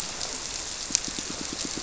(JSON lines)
{"label": "biophony, squirrelfish (Holocentrus)", "recorder": "SoundTrap 300"}